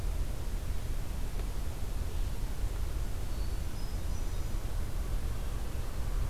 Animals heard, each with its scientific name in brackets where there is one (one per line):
Hermit Thrush (Catharus guttatus)